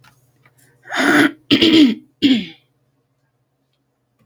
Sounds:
Throat clearing